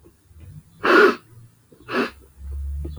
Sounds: Sniff